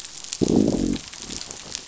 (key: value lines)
label: biophony, growl
recorder: SoundTrap 500